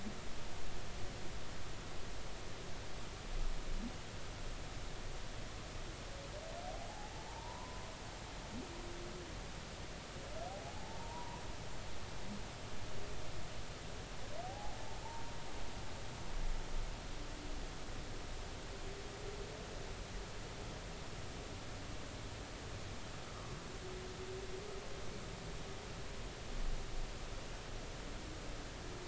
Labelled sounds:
7.3	7.8	humpback whale, 0.83 to 1.1 kHz
10.7	11.4	humpback whale, 0.80 to 1.1 kHz
14.4	14.7	humpback whale, 0.80 to 0.90 kHz

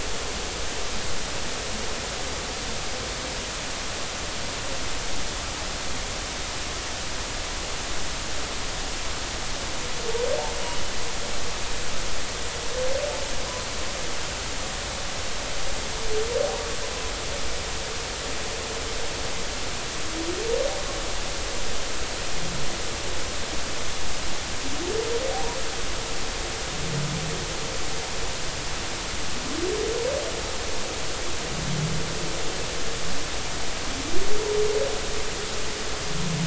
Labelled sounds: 25.3	25.6	humpback whale, 0.80 to 0.99 kHz

